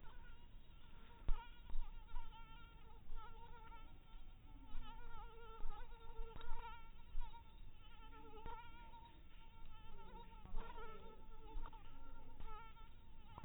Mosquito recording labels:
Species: mosquito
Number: one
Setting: cup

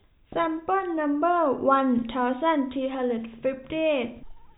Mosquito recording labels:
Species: no mosquito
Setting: cup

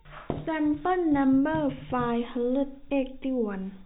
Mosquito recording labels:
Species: no mosquito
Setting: cup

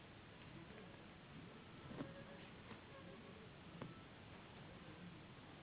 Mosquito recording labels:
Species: Anopheles gambiae s.s.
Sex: female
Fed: unfed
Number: one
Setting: insect culture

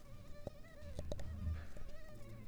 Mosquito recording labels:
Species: mosquito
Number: one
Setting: cup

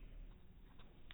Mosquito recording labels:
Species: no mosquito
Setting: cup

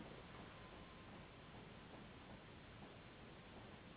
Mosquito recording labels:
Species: Anopheles gambiae s.s.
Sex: female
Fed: unfed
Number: one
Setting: insect culture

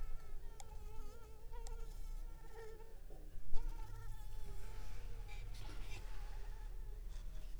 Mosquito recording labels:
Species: Anopheles arabiensis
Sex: female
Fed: unfed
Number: one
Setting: cup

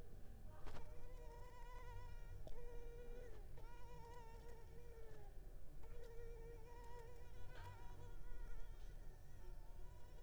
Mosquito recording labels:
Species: Culex pipiens complex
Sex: female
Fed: unfed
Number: one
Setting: cup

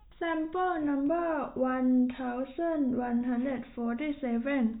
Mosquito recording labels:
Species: no mosquito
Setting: cup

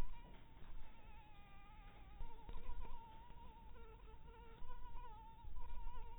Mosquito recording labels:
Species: Anopheles harrisoni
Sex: female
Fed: blood-fed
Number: one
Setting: cup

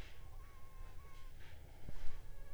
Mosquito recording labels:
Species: Anopheles funestus s.s.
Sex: female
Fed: unfed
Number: one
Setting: cup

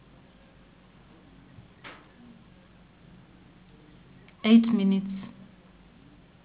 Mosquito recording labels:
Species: Anopheles gambiae s.s.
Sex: female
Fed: unfed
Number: one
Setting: insect culture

